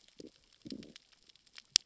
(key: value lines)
label: biophony, growl
recorder: SoundTrap 600 or HydroMoth